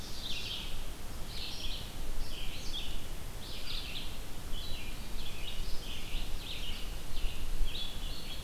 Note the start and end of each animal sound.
[0.00, 0.72] Ovenbird (Seiurus aurocapilla)
[0.00, 8.44] Red-eyed Vireo (Vireo olivaceus)

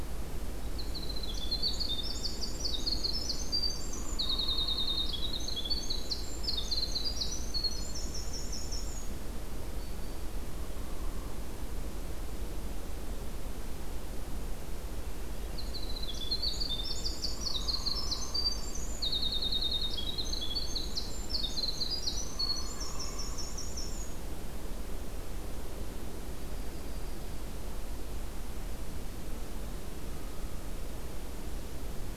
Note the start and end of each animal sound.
[0.63, 9.20] Winter Wren (Troglodytes hiemalis)
[3.79, 5.53] Hairy Woodpecker (Dryobates villosus)
[9.35, 10.39] Black-throated Green Warbler (Setophaga virens)
[10.40, 11.39] Hairy Woodpecker (Dryobates villosus)
[15.51, 24.34] Winter Wren (Troglodytes hiemalis)
[17.29, 18.65] Hairy Woodpecker (Dryobates villosus)
[22.16, 23.68] Hairy Woodpecker (Dryobates villosus)
[22.68, 23.52] Hermit Thrush (Catharus guttatus)
[26.22, 27.39] Yellow-rumped Warbler (Setophaga coronata)
[29.99, 30.76] Hairy Woodpecker (Dryobates villosus)

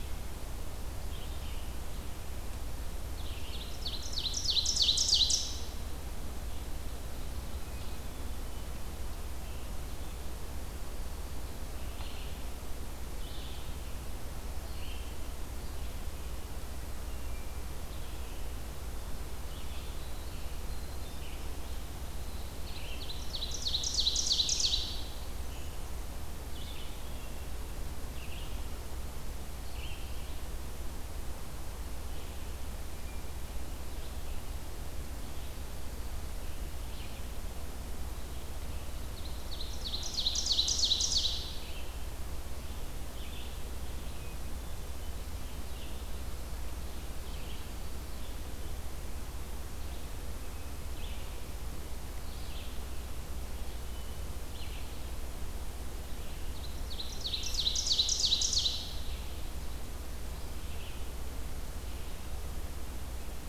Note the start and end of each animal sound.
[0.00, 23.18] Red-eyed Vireo (Vireo olivaceus)
[3.24, 5.95] Ovenbird (Seiurus aurocapilla)
[16.94, 17.87] Hermit Thrush (Catharus guttatus)
[19.18, 22.72] Winter Wren (Troglodytes hiemalis)
[22.59, 25.55] Ovenbird (Seiurus aurocapilla)
[26.46, 63.48] Red-eyed Vireo (Vireo olivaceus)
[27.12, 27.95] Hermit Thrush (Catharus guttatus)
[39.26, 41.84] Ovenbird (Seiurus aurocapilla)
[44.22, 45.18] Hermit Thrush (Catharus guttatus)
[56.35, 59.31] Ovenbird (Seiurus aurocapilla)

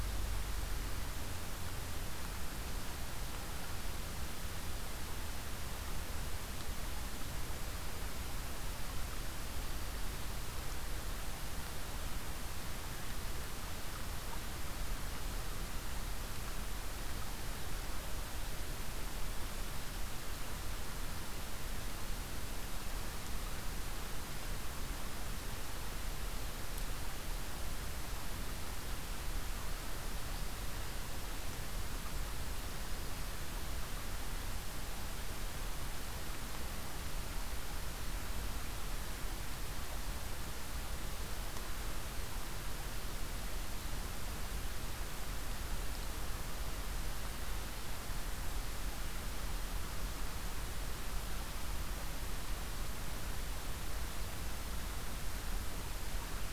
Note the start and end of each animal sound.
[9.56, 9.96] Black-throated Green Warbler (Setophaga virens)
[24.11, 24.55] Black-throated Green Warbler (Setophaga virens)
[32.82, 33.35] Black-throated Green Warbler (Setophaga virens)

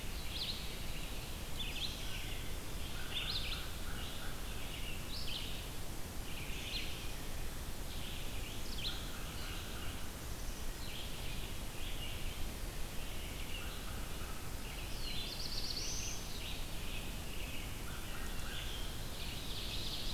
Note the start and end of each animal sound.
[0.00, 20.14] Red-eyed Vireo (Vireo olivaceus)
[0.60, 1.16] Eastern Wood-Pewee (Contopus virens)
[2.07, 2.50] Wood Thrush (Hylocichla mustelina)
[2.85, 4.55] American Crow (Corvus brachyrhynchos)
[3.99, 5.19] Eastern Wood-Pewee (Contopus virens)
[6.37, 7.26] Black-capped Chickadee (Poecile atricapillus)
[8.66, 10.21] American Crow (Corvus brachyrhynchos)
[10.14, 11.04] Black-capped Chickadee (Poecile atricapillus)
[13.55, 14.54] American Crow (Corvus brachyrhynchos)
[14.84, 16.22] Black-throated Blue Warbler (Setophaga caerulescens)
[17.80, 18.63] Wood Thrush (Hylocichla mustelina)
[18.60, 20.14] Ovenbird (Seiurus aurocapilla)

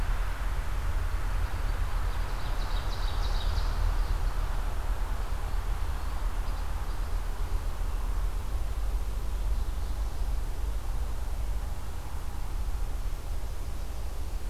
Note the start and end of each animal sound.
[1.82, 3.92] Ovenbird (Seiurus aurocapilla)
[5.73, 7.37] Ovenbird (Seiurus aurocapilla)

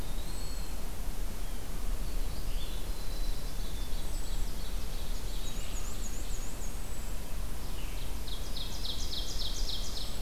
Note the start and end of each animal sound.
[0.00, 0.95] Eastern Wood-Pewee (Contopus virens)
[0.00, 10.21] Red-eyed Vireo (Vireo olivaceus)
[0.00, 10.21] unidentified call
[2.38, 3.72] Black-throated Blue Warbler (Setophaga caerulescens)
[3.80, 5.33] Ovenbird (Seiurus aurocapilla)
[5.08, 6.77] Black-and-white Warbler (Mniotilta varia)
[7.49, 10.17] Ovenbird (Seiurus aurocapilla)

